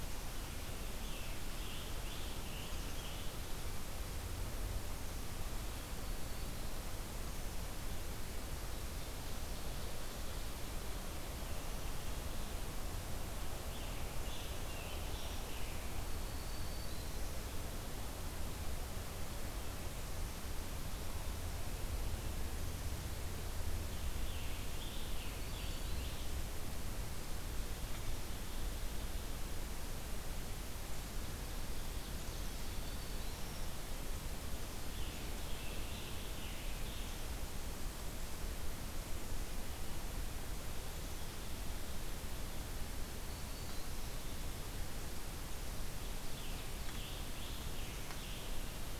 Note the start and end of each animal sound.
0.6s-3.4s: Scarlet Tanager (Piranga olivacea)
5.6s-6.8s: Black-throated Green Warbler (Setophaga virens)
13.2s-16.3s: Scarlet Tanager (Piranga olivacea)
15.8s-17.4s: Black-throated Green Warbler (Setophaga virens)
23.6s-26.5s: Scarlet Tanager (Piranga olivacea)
25.0s-26.3s: Black-throated Green Warbler (Setophaga virens)
32.3s-33.7s: Black-throated Green Warbler (Setophaga virens)
34.6s-37.6s: Scarlet Tanager (Piranga olivacea)
42.9s-44.1s: Black-throated Green Warbler (Setophaga virens)
45.8s-48.6s: Scarlet Tanager (Piranga olivacea)

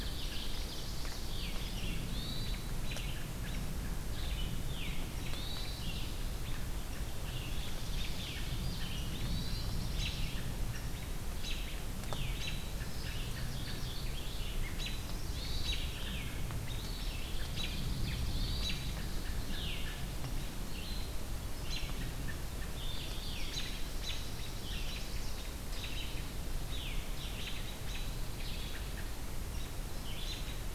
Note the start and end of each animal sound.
0.0s-1.1s: Ovenbird (Seiurus aurocapilla)
0.0s-30.5s: Red-eyed Vireo (Vireo olivaceus)
1.9s-2.6s: Hermit Thrush (Catharus guttatus)
5.2s-5.9s: Hermit Thrush (Catharus guttatus)
7.5s-8.5s: Chestnut-sided Warbler (Setophaga pensylvanica)
9.0s-10.3s: Pine Warbler (Setophaga pinus)
13.3s-14.3s: Mourning Warbler (Geothlypis philadelphia)
15.2s-16.0s: Hermit Thrush (Catharus guttatus)
16.9s-19.6s: Ovenbird (Seiurus aurocapilla)
18.4s-19.0s: Hermit Thrush (Catharus guttatus)
22.6s-24.0s: Mourning Warbler (Geothlypis philadelphia)
24.5s-25.4s: Chestnut-sided Warbler (Setophaga pensylvanica)
27.8s-29.3s: Pine Warbler (Setophaga pinus)

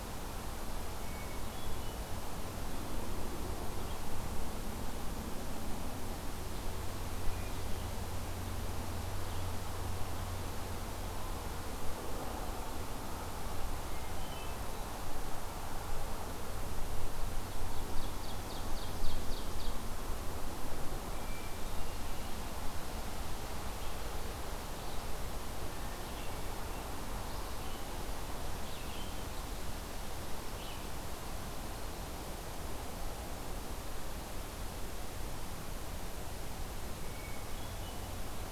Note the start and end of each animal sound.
1.0s-2.0s: Hermit Thrush (Catharus guttatus)
13.8s-15.0s: Hermit Thrush (Catharus guttatus)
17.4s-19.9s: Ovenbird (Seiurus aurocapilla)
21.1s-22.4s: Hermit Thrush (Catharus guttatus)
23.5s-27.6s: Red-eyed Vireo (Vireo olivaceus)
28.5s-31.0s: Red-eyed Vireo (Vireo olivaceus)
37.0s-38.3s: Hermit Thrush (Catharus guttatus)

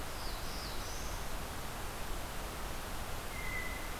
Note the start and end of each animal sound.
0.0s-1.3s: Black-throated Blue Warbler (Setophaga caerulescens)
3.2s-4.0s: Blue Jay (Cyanocitta cristata)

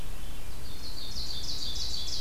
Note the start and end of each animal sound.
0.4s-2.2s: White-throated Sparrow (Zonotrichia albicollis)
0.4s-2.2s: Ovenbird (Seiurus aurocapilla)

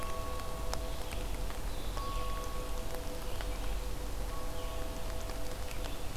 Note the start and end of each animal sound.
0.8s-6.2s: Red-eyed Vireo (Vireo olivaceus)

